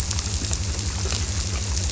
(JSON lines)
{"label": "biophony", "recorder": "SoundTrap 300"}